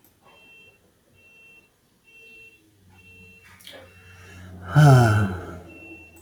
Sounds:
Sigh